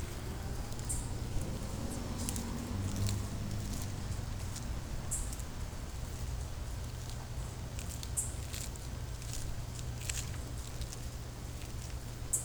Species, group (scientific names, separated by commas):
Microcentrum rhombifolium, Orthoptera